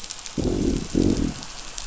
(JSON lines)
{"label": "biophony, growl", "recorder": "SoundTrap 500"}